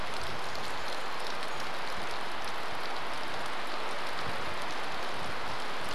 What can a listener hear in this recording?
rain